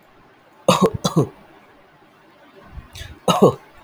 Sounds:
Cough